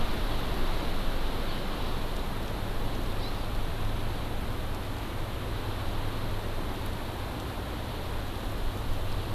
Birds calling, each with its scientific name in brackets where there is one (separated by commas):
Hawaii Amakihi (Chlorodrepanis virens)